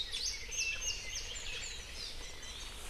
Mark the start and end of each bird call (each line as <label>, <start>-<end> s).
Hawaii Akepa (Loxops coccineus), 0.0-1.3 s
Warbling White-eye (Zosterops japonicus), 2.1-2.8 s